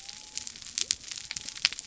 {"label": "biophony", "recorder": "SoundTrap 300"}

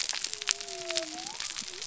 {"label": "biophony", "recorder": "SoundTrap 300"}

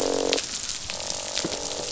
{"label": "biophony, croak", "recorder": "SoundTrap 500"}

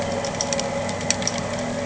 {"label": "anthrophony, boat engine", "recorder": "HydroMoth"}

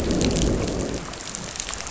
{"label": "biophony, growl", "recorder": "SoundTrap 500"}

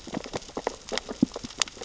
{"label": "biophony, sea urchins (Echinidae)", "recorder": "SoundTrap 600 or HydroMoth"}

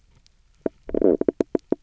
{"label": "biophony, knock croak", "recorder": "SoundTrap 300"}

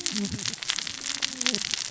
{"label": "biophony, cascading saw", "recorder": "SoundTrap 600 or HydroMoth"}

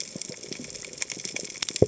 {"label": "biophony", "recorder": "HydroMoth"}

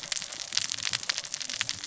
{"label": "biophony, cascading saw", "recorder": "SoundTrap 600 or HydroMoth"}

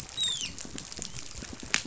{"label": "biophony, dolphin", "recorder": "SoundTrap 500"}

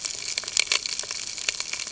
{"label": "ambient", "recorder": "HydroMoth"}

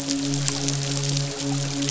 {"label": "biophony, midshipman", "recorder": "SoundTrap 500"}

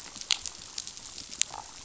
{"label": "biophony, damselfish", "recorder": "SoundTrap 500"}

